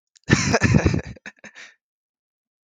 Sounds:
Laughter